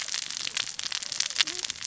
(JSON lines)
{"label": "biophony, cascading saw", "recorder": "SoundTrap 600 or HydroMoth"}